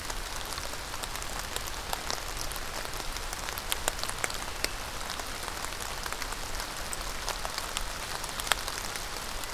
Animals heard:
forest ambience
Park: Marsh-Billings-Rockefeller National Historical Park